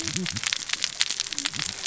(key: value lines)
label: biophony, cascading saw
recorder: SoundTrap 600 or HydroMoth